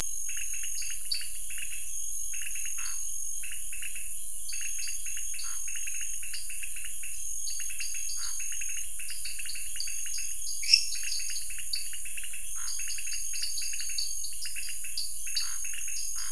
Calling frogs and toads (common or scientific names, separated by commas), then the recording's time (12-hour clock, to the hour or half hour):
pointedbelly frog, dwarf tree frog, Scinax fuscovarius, lesser tree frog
8:30pm